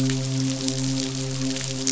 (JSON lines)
{"label": "biophony, midshipman", "recorder": "SoundTrap 500"}